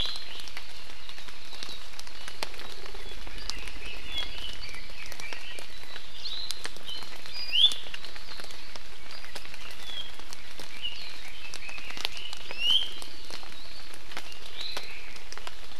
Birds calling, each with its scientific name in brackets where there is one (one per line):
Omao (Myadestes obscurus)
Iiwi (Drepanis coccinea)
Red-billed Leiothrix (Leiothrix lutea)
Apapane (Himatione sanguinea)